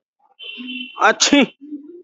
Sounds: Sneeze